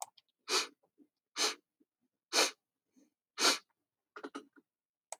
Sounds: Sniff